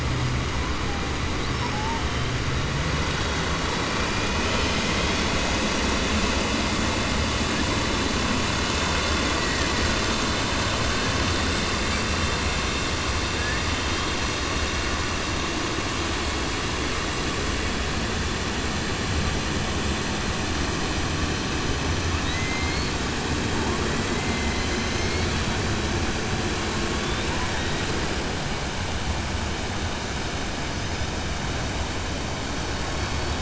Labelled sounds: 22.1	22.8	killer whale, 1.6 to 4.0 kHz

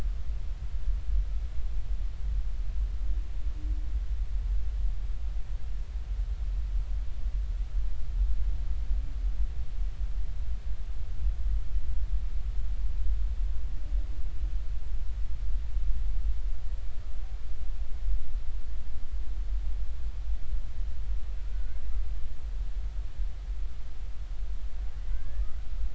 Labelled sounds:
21.4	21.8	humpback whale, 1.4 to 1.6 kHz
25.1	25.7	humpback whale, 1.2 to 1.9 kHz

